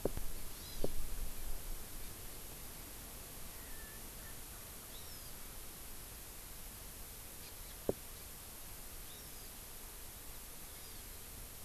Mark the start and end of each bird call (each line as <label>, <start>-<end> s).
Hawaii Amakihi (Chlorodrepanis virens), 0.5-0.9 s
Erckel's Francolin (Pternistis erckelii), 3.5-5.2 s
Hawaii Amakihi (Chlorodrepanis virens), 4.9-5.4 s
Hawaii Amakihi (Chlorodrepanis virens), 7.4-7.5 s
Hawaii Amakihi (Chlorodrepanis virens), 9.0-9.5 s
Hawaii Amakihi (Chlorodrepanis virens), 10.7-11.0 s